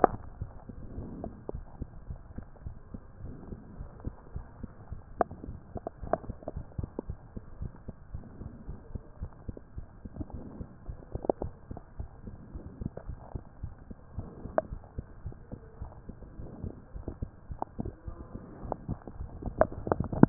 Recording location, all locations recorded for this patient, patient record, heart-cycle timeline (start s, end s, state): mitral valve (MV)
aortic valve (AV)+pulmonary valve (PV)+tricuspid valve (TV)+mitral valve (MV)
#Age: Child
#Sex: Male
#Height: 117.0 cm
#Weight: 12.0 kg
#Pregnancy status: False
#Murmur: Absent
#Murmur locations: nan
#Most audible location: nan
#Systolic murmur timing: nan
#Systolic murmur shape: nan
#Systolic murmur grading: nan
#Systolic murmur pitch: nan
#Systolic murmur quality: nan
#Diastolic murmur timing: nan
#Diastolic murmur shape: nan
#Diastolic murmur grading: nan
#Diastolic murmur pitch: nan
#Diastolic murmur quality: nan
#Outcome: Normal
#Campaign: 2015 screening campaign
0.00	1.32	unannotated
1.32	1.50	diastole
1.50	1.64	S1
1.64	1.78	systole
1.78	1.88	S2
1.88	2.06	diastole
2.06	2.18	S1
2.18	2.36	systole
2.36	2.44	S2
2.44	2.64	diastole
2.64	2.76	S1
2.76	2.94	systole
2.94	3.00	S2
3.00	3.20	diastole
3.20	3.36	S1
3.36	3.48	systole
3.48	3.58	S2
3.58	3.78	diastole
3.78	3.88	S1
3.88	4.00	systole
4.00	4.16	S2
4.16	4.32	diastole
4.32	4.46	S1
4.46	4.60	systole
4.60	4.70	S2
4.70	4.88	diastole
4.88	5.02	S1
5.02	5.16	systole
5.16	5.30	S2
5.30	5.48	diastole
5.48	5.60	S1
5.60	5.72	systole
5.72	5.82	S2
5.82	6.00	diastole
6.00	6.14	S1
6.14	6.26	systole
6.26	6.36	S2
6.36	6.54	diastole
6.54	6.64	S1
6.64	6.74	systole
6.74	6.88	S2
6.88	7.06	diastole
7.06	7.16	S1
7.16	7.34	systole
7.34	7.44	S2
7.44	7.60	diastole
7.60	7.72	S1
7.72	7.88	systole
7.88	7.94	S2
7.94	8.12	diastole
8.12	8.22	S1
8.22	8.38	systole
8.38	8.50	S2
8.50	8.66	diastole
8.66	8.76	S1
8.76	8.90	systole
8.90	9.02	S2
9.02	9.20	diastole
9.20	9.30	S1
9.30	9.46	systole
9.46	9.58	S2
9.58	9.76	diastole
9.76	9.86	S1
9.86	10.00	systole
10.00	10.10	S2
10.10	10.32	diastole
10.32	10.46	S1
10.46	10.58	systole
10.58	10.68	S2
10.68	10.86	diastole
10.86	10.98	S1
10.98	11.12	systole
11.12	11.24	S2
11.24	11.42	diastole
11.42	11.56	S1
11.56	11.70	systole
11.70	11.82	S2
11.82	11.98	diastole
11.98	12.10	S1
12.10	12.25	systole
12.25	12.35	S2
12.35	12.54	diastole
12.54	12.64	S1
12.64	12.80	systole
12.80	12.87	S2
12.87	13.07	diastole
13.07	13.18	S1
13.18	13.32	systole
13.32	13.44	S2
13.44	13.62	diastole
13.62	13.74	S1
13.74	13.90	systole
13.90	13.96	S2
13.96	14.16	diastole
14.16	14.30	S1
14.30	14.43	systole
14.43	14.54	S2
14.54	14.70	diastole
14.70	14.84	S1
14.84	14.98	systole
14.98	15.10	S2
15.10	15.24	diastole
15.24	15.34	S1
15.34	15.52	systole
15.52	15.62	S2
15.62	15.80	diastole
15.80	15.94	S1
15.94	16.10	systole
16.10	16.18	S2
16.18	16.38	diastole
16.38	16.50	S1
16.50	16.62	systole
16.62	16.74	S2
16.74	16.94	diastole
16.94	20.29	unannotated